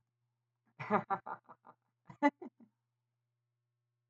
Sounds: Laughter